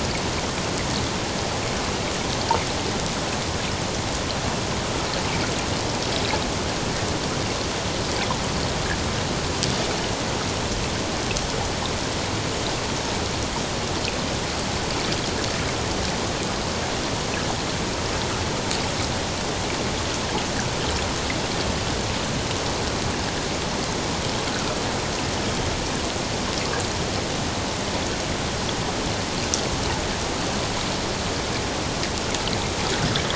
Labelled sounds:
24.5	24.8	water noise, 1.3 to 1.7 kHz

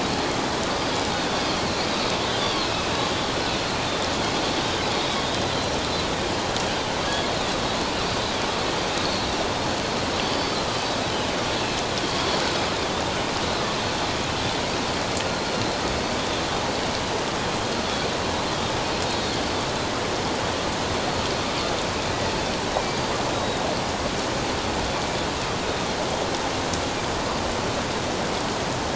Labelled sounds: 2.3	2.9	Pacific white-sided dolphin, 2.5 to 4.8 kHz
4.9	5.2	Pacific white-sided dolphin, 3.7 to 3.9 kHz
7.0	7.3	Pacific white-sided dolphin, 3.2 to 3.5 kHz
8.1	8.4	Pacific white-sided dolphin, 4.6 to 4.8 kHz
10.3	11.0	Pacific white-sided dolphin, 4.4 to 5.2 kHz
15.3	15.6	Pacific white-sided dolphin, 4.1 to 4.4 kHz
19.1	19.3	Pacific white-sided dolphin, 3.6 to 3.8 kHz
22.8	23.6	Pacific white-sided dolphin, 3.7 to 4.7 kHz

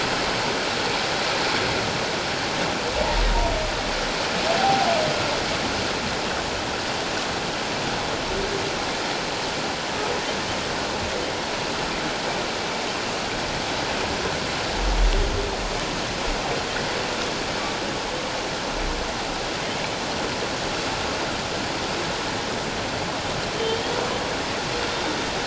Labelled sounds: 4.6	4.9	humpback whale, 0.78 to 0.84 kHz
23.6	24.0	humpback whale, 3.0 to 3.4 kHz

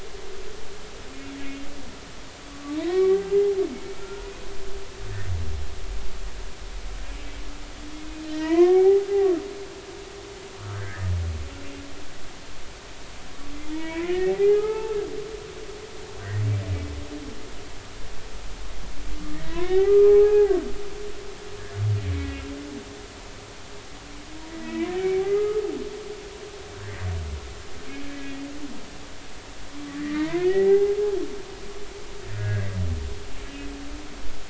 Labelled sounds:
2.7	3.3	humpback whale, 0.80 to 2.3 kHz
4.0	4.3	humpback whale, 1.3 to 1.5 kHz
8.2	9.1	humpback whale, 0.80 to 4.1 kHz
10.7	11.1	humpback whale, 1.5 to 2.3 kHz
13.7	15.1	humpback whale, 0.80 to 3.0 kHz
19.3	20.6	humpback whale, 0.80 to 2.4 kHz
24.5	25.6	humpback whale, 0.93 to 2.4 kHz
26.7	27.0	humpback whale, 1.4 to 2.1 kHz
28.1	28.4	humpback whale, 1.9 to 2.0 kHz
30.0	31.0	humpback whale, 0.80 to 2.4 kHz
32.3	32.7	humpback whale, 1.4 to 1.7 kHz

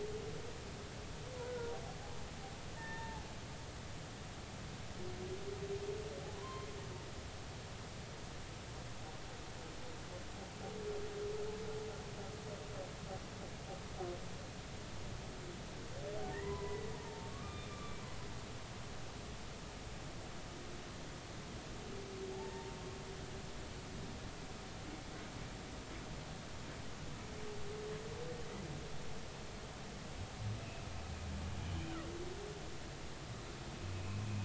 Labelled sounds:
1.4	1.7	humpback whale, 1.3 to 1.5 kHz
2.8	3.2	humpback whale, 0.80 to 1.9 kHz
6.3	6.7	humpback whale, 0.93 to 1.1 kHz
16.3	18.0	humpback whale, 0.86 to 2.5 kHz
22.3	22.8	humpback whale, 0.80 to 0.96 kHz
33.9	34.2	humpback whale, 2.5 to 2.6 kHz

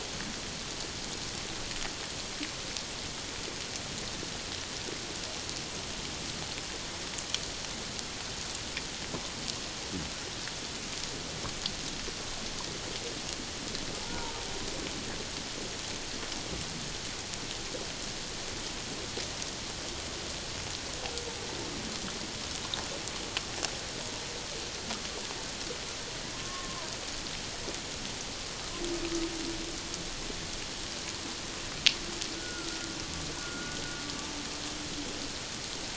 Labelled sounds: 14.0	14.3	humpback whale, 0.81 to 1.0 kHz
26.3	26.9	humpback whale, 0.91 to 1.2 kHz
32.4	32.8	humpback whale, 1.3 to 1.5 kHz
33.4	33.8	humpback whale, 1.3 to 1.5 kHz

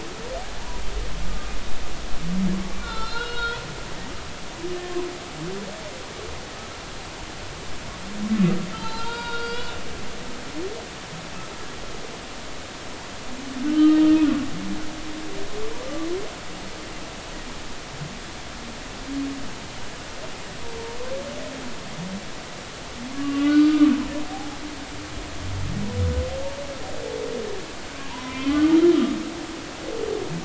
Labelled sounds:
2.9	4.6	humpback whale, 0.83 to 5.6 kHz
8.7	9.7	humpback whale, 0.83 to 4.9 kHz
13.7	14.0	humpback whale, 1.2 to 3.3 kHz
23.1	23.9	humpback whale, 1.1 to 3.0 kHz
28.1	28.8	humpback whale, 0.86 to 2.5 kHz

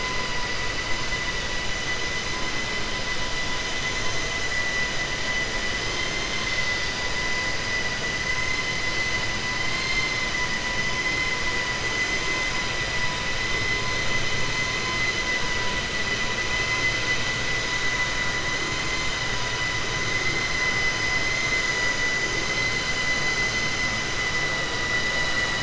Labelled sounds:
9.6	10.2	vessel noise, 1.1 to 4.7 kHz

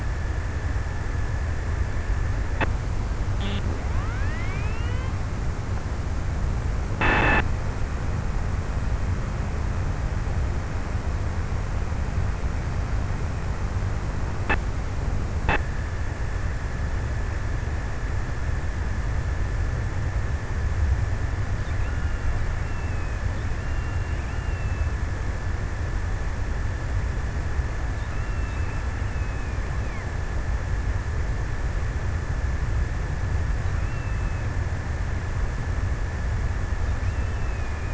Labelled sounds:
21.0	25.6	killer whale, offshore, 0.93 to 3.4 kHz
28.0	29.6	killer whale, offshore, 0.68 to 3.2 kHz
33.3	34.7	killer whale, offshore, 1.2 to 3.2 kHz
36.7	37.9	killer whale, offshore, 0.65 to 3.1 kHz

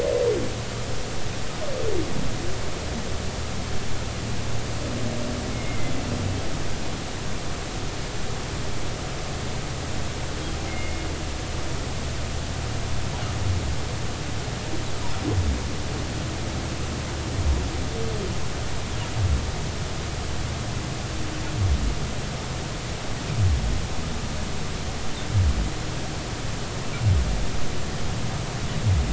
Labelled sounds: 5.5	5.9	humpback whale, 2.0 to 2.2 kHz
10.7	11.1	humpback whale, 2.1 to 2.2 kHz

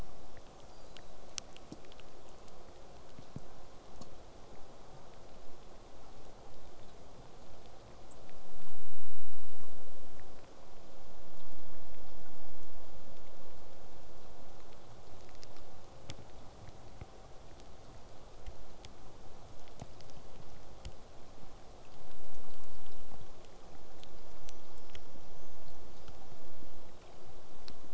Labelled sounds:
24.4	26.2	killer whale, southern resident, J pod, whistle, 4.2 to 6.6 kHz

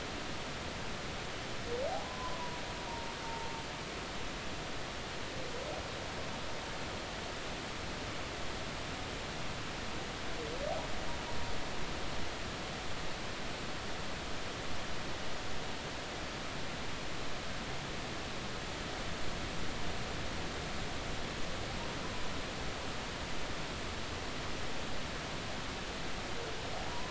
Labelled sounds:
1.9	3.5	humpback whale, 0.80 to 1.1 kHz
26.9	27.1	humpback whale, 0.90 to 1.1 kHz

